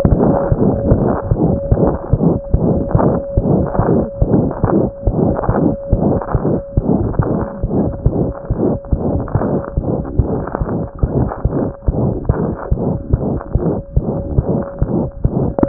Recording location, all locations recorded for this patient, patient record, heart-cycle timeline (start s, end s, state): mitral valve (MV)
mitral valve (MV)
#Age: Child
#Sex: Male
#Height: 81.0 cm
#Weight: 9.4 kg
#Pregnancy status: False
#Murmur: Present
#Murmur locations: mitral valve (MV)
#Most audible location: mitral valve (MV)
#Systolic murmur timing: Mid-systolic
#Systolic murmur shape: Diamond
#Systolic murmur grading: I/VI
#Systolic murmur pitch: High
#Systolic murmur quality: Musical
#Diastolic murmur timing: nan
#Diastolic murmur shape: nan
#Diastolic murmur grading: nan
#Diastolic murmur pitch: nan
#Diastolic murmur quality: nan
#Outcome: Abnormal
#Campaign: 2014 screening campaign
0.00	13.12	unannotated
13.12	13.20	S1
13.20	13.33	systole
13.33	13.41	S2
13.41	13.54	diastole
13.54	13.63	S1
13.63	13.76	systole
13.76	13.85	S2
13.85	13.96	diastole
13.96	14.04	S1
14.04	14.18	systole
14.18	14.26	S2
14.26	14.38	diastole
14.38	14.47	S1
14.47	14.60	systole
14.60	14.69	S2
14.69	14.81	diastole
14.81	14.90	S1
14.90	15.03	systole
15.03	15.11	S2
15.11	15.24	diastole
15.24	15.32	S1
15.32	15.45	systole
15.45	15.53	S2
15.53	15.66	diastole
15.66	15.68	unannotated